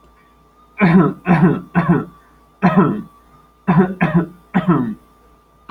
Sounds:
Cough